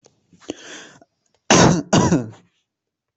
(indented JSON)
{
  "expert_labels": [
    {
      "quality": "good",
      "cough_type": "dry",
      "dyspnea": false,
      "wheezing": false,
      "stridor": false,
      "choking": false,
      "congestion": false,
      "nothing": true,
      "diagnosis": "lower respiratory tract infection",
      "severity": "mild"
    }
  ],
  "gender": "female",
  "respiratory_condition": false,
  "fever_muscle_pain": false,
  "status": "COVID-19"
}